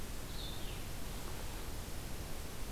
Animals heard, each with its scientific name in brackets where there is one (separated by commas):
Blue-headed Vireo (Vireo solitarius)